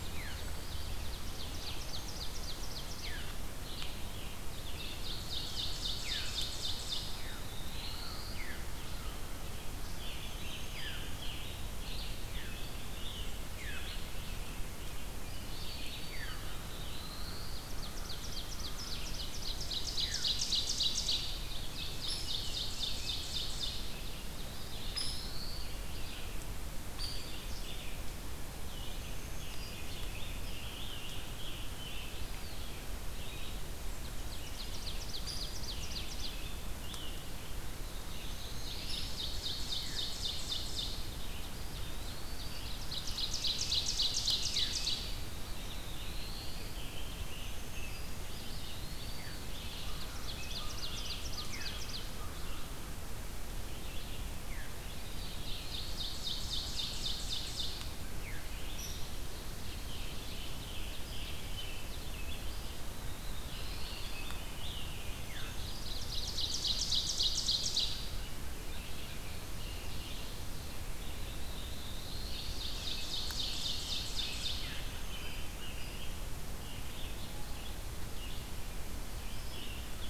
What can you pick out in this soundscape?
Eastern Wood-Pewee, Red-eyed Vireo, Veery, Ovenbird, Black-throated Blue Warbler, Black-throated Green Warbler, Scarlet Tanager, Hairy Woodpecker